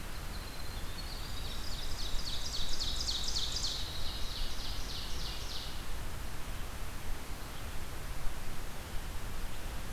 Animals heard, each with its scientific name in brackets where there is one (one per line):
Ovenbird (Seiurus aurocapilla)
Winter Wren (Troglodytes hiemalis)
Red-eyed Vireo (Vireo olivaceus)
Blackburnian Warbler (Setophaga fusca)